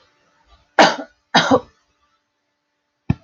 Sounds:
Cough